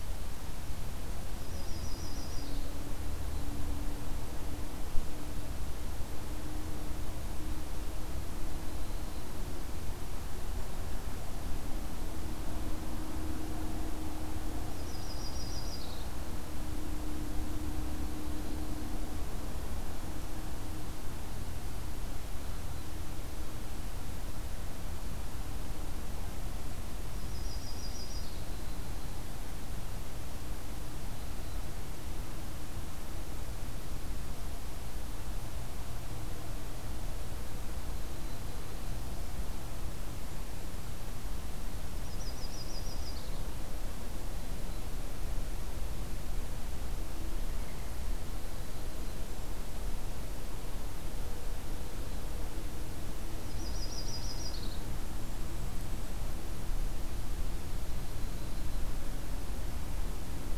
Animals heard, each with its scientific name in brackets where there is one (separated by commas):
Yellow-rumped Warbler (Setophaga coronata), Golden-crowned Kinglet (Regulus satrapa)